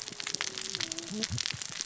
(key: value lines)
label: biophony, cascading saw
recorder: SoundTrap 600 or HydroMoth